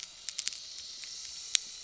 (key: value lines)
label: anthrophony, boat engine
recorder: SoundTrap 300